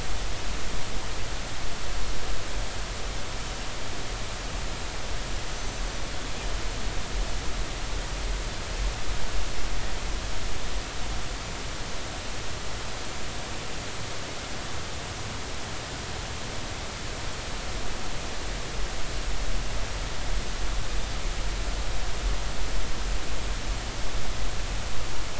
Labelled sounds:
5.5	5.8	Pacific white-sided dolphin, 6.0 to 6.2 kHz

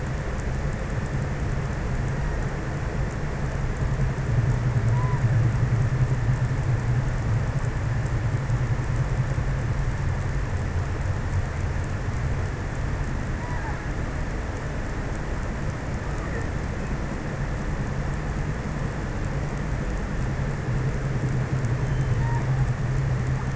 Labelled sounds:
4.7	5.7	killer whale, offshore, 0.53 to 2.2 kHz
12.7	14.0	killer whale, offshore, 0.49 to 2.1 kHz
15.9	16.8	killer whale, offshore, 0.69 to 2.3 kHz
21.8	22.7	killer whale, offshore, 0.24 to 2.2 kHz

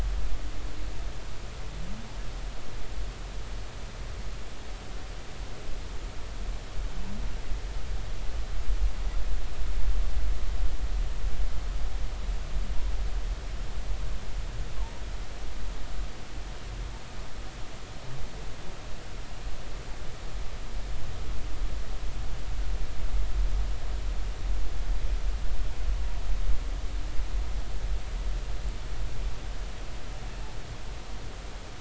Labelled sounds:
14.8	15.0	humpback whale, 0.86 to 1.1 kHz

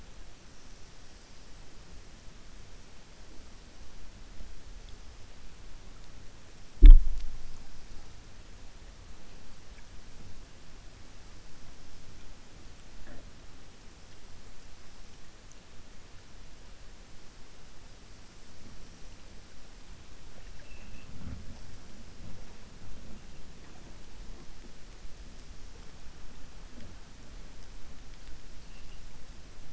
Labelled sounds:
20.3	21.1	killer whale, 1.6 to 3.0 kHz

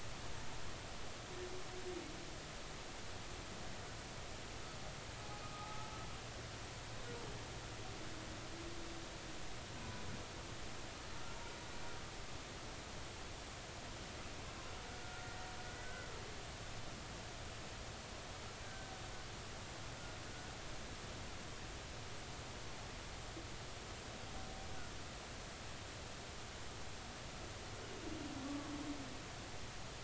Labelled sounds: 5.4	5.9	humpback whale, 1.2 to 1.3 kHz
14.9	16.1	humpback whale, 1.3 to 1.9 kHz
18.6	18.9	humpback whale, 1.5 to 1.6 kHz
28.4	28.7	humpback whale, 1.1 to 1.2 kHz

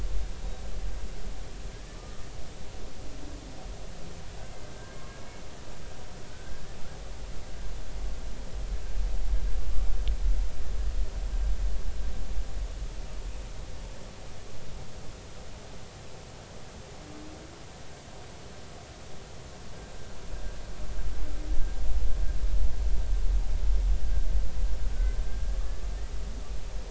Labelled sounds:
1.9	2.2	humpback whale, 1.15 to 1.25 kHz
4.7	5.4	humpback whale, 1.5 to 2.3 kHz

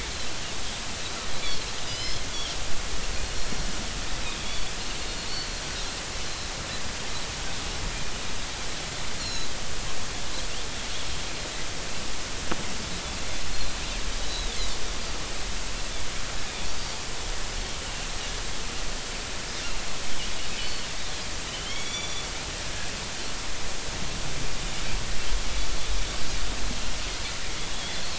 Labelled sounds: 1.9	2.2	Pacific white-sided dolphin, 4.0 to 5.4 kHz
4.4	5.5	Pacific white-sided dolphin, 3.3 to 4.6 kHz
9.2	9.5	Pacific white-sided dolphin, 3.9 to 7.2 kHz
13.5	14.5	Pacific white-sided dolphin, 3.7 to 4.4 kHz
21.0	22.3	Pacific white-sided dolphin, 2.1 to 5.9 kHz
27.7	28.0	Pacific white-sided dolphin, 3.2 to 3.6 kHz

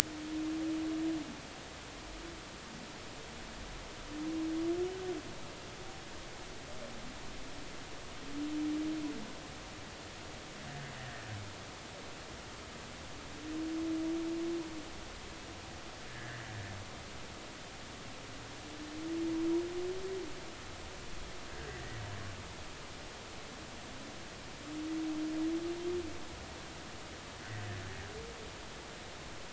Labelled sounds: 16.1	16.4	humpback whale, 1.5 to 2.0 kHz

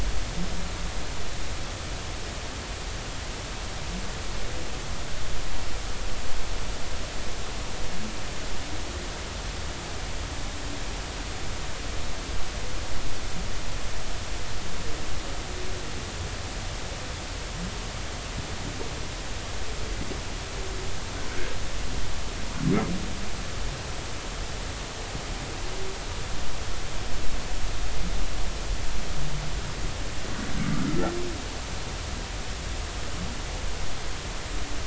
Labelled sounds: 30.9	31.1	humpback whale, 1.2 to 1.5 kHz

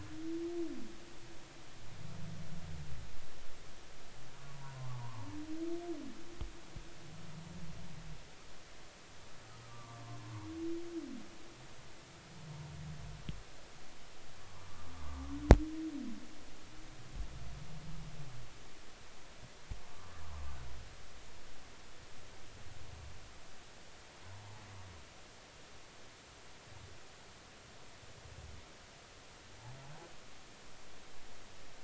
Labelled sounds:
4.5	5.3	humpback whale, 0.83 to 1.2 kHz
9.7	10.0	humpback whale, 0.90 to 1.2 kHz
20.5	20.7	humpback whale, 1.4 to 1.6 kHz

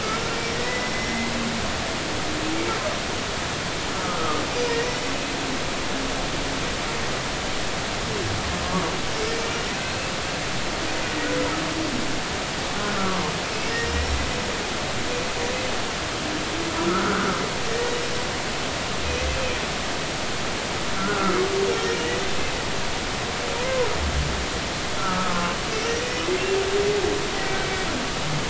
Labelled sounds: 0.6	1.3	humpback whale, 1.9 to 2.1 kHz
4.1	4.4	humpback whale, 1.0 to 1.4 kHz
13.5	14.2	humpback whale, 2.5 to 5.5 kHz
16.9	18.0	humpback whale, 1.2 to 2.0 kHz
21.0	21.4	humpback whale, 1.2 to 1.5 kHz
25.0	26.6	humpback whale, 1.2 to 2.8 kHz
27.6	27.9	humpback whale, 2.2 to 2.3 kHz

